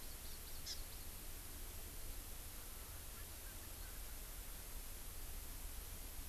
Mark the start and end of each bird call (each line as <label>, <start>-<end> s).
Hawaii Amakihi (Chlorodrepanis virens), 0.0-1.1 s